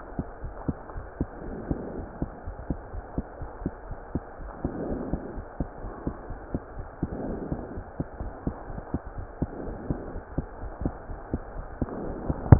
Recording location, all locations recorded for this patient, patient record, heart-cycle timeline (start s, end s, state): aortic valve (AV)
aortic valve (AV)+pulmonary valve (PV)+tricuspid valve (TV)+mitral valve (MV)
#Age: Child
#Sex: Female
#Height: 131.0 cm
#Weight: 32.4 kg
#Pregnancy status: False
#Murmur: Absent
#Murmur locations: nan
#Most audible location: nan
#Systolic murmur timing: nan
#Systolic murmur shape: nan
#Systolic murmur grading: nan
#Systolic murmur pitch: nan
#Systolic murmur quality: nan
#Diastolic murmur timing: nan
#Diastolic murmur shape: nan
#Diastolic murmur grading: nan
#Diastolic murmur pitch: nan
#Diastolic murmur quality: nan
#Outcome: Normal
#Campaign: 2015 screening campaign
0.00	0.16	unannotated
0.16	0.26	S2
0.26	0.42	diastole
0.42	0.54	S1
0.54	0.66	systole
0.66	0.76	S2
0.76	0.94	diastole
0.94	1.06	S1
1.06	1.20	systole
1.20	1.28	S2
1.28	1.46	diastole
1.46	1.60	S1
1.60	1.70	systole
1.70	1.82	S2
1.82	1.96	diastole
1.96	2.08	S1
2.08	2.20	systole
2.20	2.30	S2
2.30	2.46	diastole
2.46	2.56	S1
2.56	2.68	systole
2.68	2.78	S2
2.78	2.94	diastole
2.94	3.02	S1
3.02	3.14	systole
3.14	3.24	S2
3.24	3.40	diastole
3.40	3.50	S1
3.50	3.64	systole
3.64	3.74	S2
3.74	3.88	diastole
3.88	3.96	S1
3.96	4.14	systole
4.14	4.24	S2
4.24	4.42	diastole
4.42	4.52	S1
4.52	4.62	systole
4.62	4.72	S2
4.72	4.86	diastole
4.86	5.02	S1
5.02	5.08	systole
5.08	5.20	S2
5.20	5.34	diastole
5.34	5.44	S1
5.44	5.56	systole
5.56	5.68	S2
5.68	5.84	diastole
5.84	5.94	S1
5.94	6.06	systole
6.06	6.16	S2
6.16	6.28	diastole
6.28	6.38	S1
6.38	6.50	systole
6.50	6.60	S2
6.60	6.76	diastole
6.76	6.86	S1
6.86	6.98	systole
6.98	7.10	S2
7.10	7.22	diastole
7.22	7.38	S1
7.38	7.50	systole
7.50	7.60	S2
7.60	7.74	diastole
7.74	7.84	S1
7.84	7.98	systole
7.98	8.08	S2
8.08	8.22	diastole
8.22	8.32	S1
8.32	8.46	systole
8.46	8.54	S2
8.54	8.68	diastole
8.68	8.80	S1
8.80	8.92	systole
8.92	9.00	S2
9.00	9.15	diastole
9.15	9.26	S1
9.26	9.38	systole
9.38	9.50	S2
9.50	9.64	diastole
9.64	9.78	S1
9.78	9.88	systole
9.88	9.98	S2
9.98	10.12	diastole
10.12	10.22	S1
10.22	10.34	systole
10.34	10.46	S2
10.46	10.60	diastole
10.60	10.72	S1
10.72	10.82	systole
10.82	10.96	S2
10.96	11.08	diastole
11.08	11.20	S1
11.20	11.32	systole
11.32	11.42	S2
11.42	11.56	diastole
11.56	11.66	S1
11.66	11.78	systole
11.78	11.90	S2
11.90	12.04	diastole
12.04	12.16	S1
12.16	12.26	systole
12.26	12.38	S2
12.38	12.59	unannotated